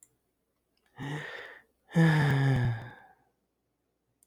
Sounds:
Sigh